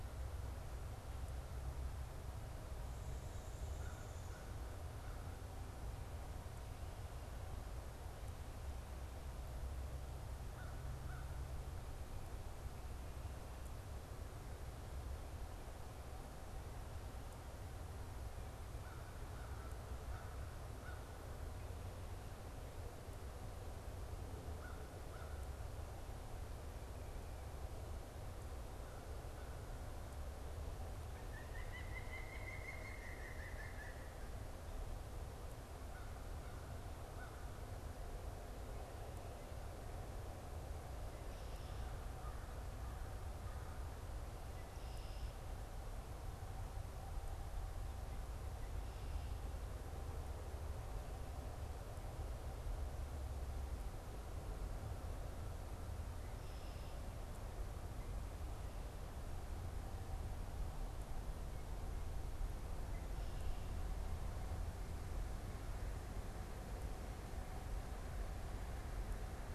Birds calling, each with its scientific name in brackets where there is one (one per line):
Pileated Woodpecker (Dryocopus pileatus)
American Crow (Corvus brachyrhynchos)